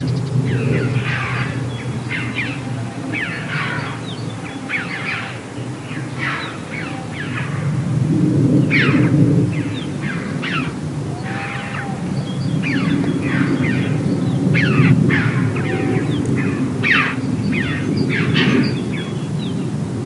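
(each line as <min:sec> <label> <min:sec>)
0:00.0 Multiple birds chirping continuously, some with clear and high-pitched calls. 0:20.1
0:07.3 Heavy thunderstorm rumbling in the distance with deep, rolling thunder that gradually fades. 0:20.0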